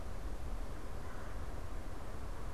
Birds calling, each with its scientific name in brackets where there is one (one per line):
Red-bellied Woodpecker (Melanerpes carolinus)